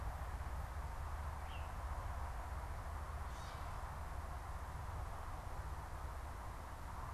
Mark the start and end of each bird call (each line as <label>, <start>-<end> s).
unidentified bird, 1.3-1.7 s
Gray Catbird (Dumetella carolinensis), 3.0-3.7 s